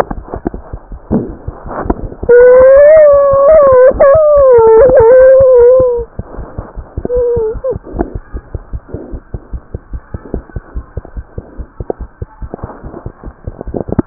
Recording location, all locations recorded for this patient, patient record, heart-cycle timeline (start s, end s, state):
aortic valve (AV)
aortic valve (AV)+mitral valve (MV)
#Age: Child
#Sex: Female
#Height: 81.0 cm
#Weight: 13.3 kg
#Pregnancy status: False
#Murmur: Unknown
#Murmur locations: nan
#Most audible location: nan
#Systolic murmur timing: nan
#Systolic murmur shape: nan
#Systolic murmur grading: nan
#Systolic murmur pitch: nan
#Systolic murmur quality: nan
#Diastolic murmur timing: nan
#Diastolic murmur shape: nan
#Diastolic murmur grading: nan
#Diastolic murmur pitch: nan
#Diastolic murmur quality: nan
#Outcome: Abnormal
#Campaign: 2015 screening campaign
0.00	8.71	unannotated
8.71	8.81	S1
8.81	8.91	systole
8.91	8.99	S2
8.99	9.11	diastole
9.11	9.20	S1
9.20	9.32	systole
9.32	9.40	S2
9.40	9.50	diastole
9.50	9.61	S1
9.61	9.71	systole
9.71	9.80	S2
9.80	9.89	diastole
9.89	10.01	S1
10.01	10.12	systole
10.12	10.20	S2
10.20	10.32	diastole
10.32	10.41	S1
10.41	10.52	systole
10.52	10.62	S2
10.62	10.73	diastole
10.73	10.84	S1
10.84	10.94	systole
10.94	11.02	S2
11.02	11.13	diastole
11.13	11.24	S1
11.24	11.35	systole
11.35	11.44	S2
11.44	11.55	diastole
11.55	11.67	S1
11.67	14.06	unannotated